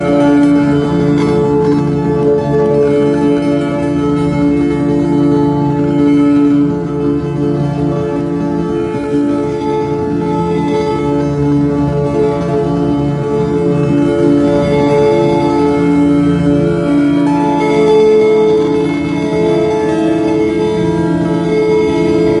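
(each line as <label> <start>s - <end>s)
Guitar sound, either electric or classical. 0.1s - 22.4s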